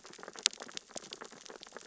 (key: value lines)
label: biophony, sea urchins (Echinidae)
recorder: SoundTrap 600 or HydroMoth